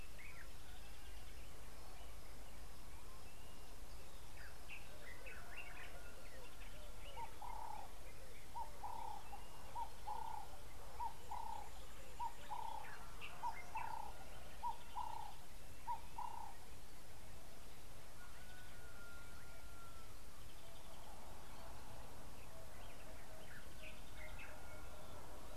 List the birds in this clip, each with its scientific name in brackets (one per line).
Ring-necked Dove (Streptopelia capicola)